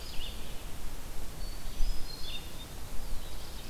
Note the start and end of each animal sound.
[0.00, 3.70] Red-eyed Vireo (Vireo olivaceus)
[1.37, 2.62] Hermit Thrush (Catharus guttatus)
[2.78, 3.70] Black-throated Blue Warbler (Setophaga caerulescens)

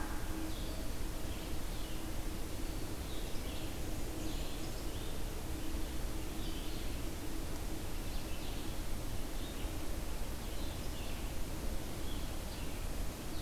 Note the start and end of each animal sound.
[0.00, 13.41] Red-eyed Vireo (Vireo olivaceus)
[3.48, 4.86] Blackburnian Warbler (Setophaga fusca)

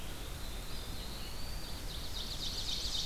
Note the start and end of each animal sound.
[0.00, 3.05] Red-eyed Vireo (Vireo olivaceus)
[0.47, 2.07] Eastern Wood-Pewee (Contopus virens)
[1.57, 3.05] Ovenbird (Seiurus aurocapilla)

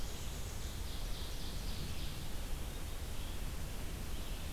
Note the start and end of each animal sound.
[0.00, 0.81] Blackburnian Warbler (Setophaga fusca)
[0.00, 4.52] Red-eyed Vireo (Vireo olivaceus)
[0.51, 2.22] Ovenbird (Seiurus aurocapilla)

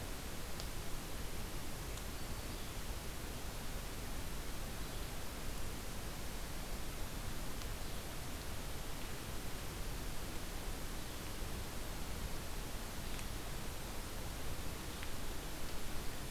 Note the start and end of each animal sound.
[1.96, 2.61] Black-throated Green Warbler (Setophaga virens)

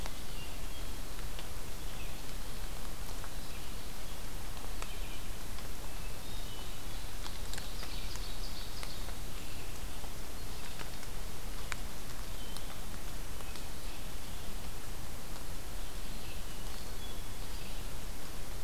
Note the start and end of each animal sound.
[0.00, 18.64] Red-eyed Vireo (Vireo olivaceus)
[5.64, 7.15] Hermit Thrush (Catharus guttatus)
[7.06, 9.39] Ovenbird (Seiurus aurocapilla)
[16.05, 17.58] Hermit Thrush (Catharus guttatus)

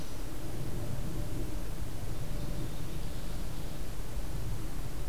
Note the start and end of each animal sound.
[1.97, 3.49] unidentified call

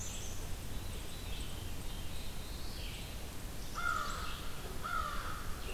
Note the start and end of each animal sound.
[0.00, 5.73] Red-eyed Vireo (Vireo olivaceus)
[0.58, 2.09] Veery (Catharus fuscescens)
[1.52, 2.96] Black-throated Blue Warbler (Setophaga caerulescens)
[3.46, 5.47] American Crow (Corvus brachyrhynchos)

